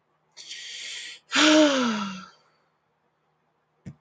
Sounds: Sigh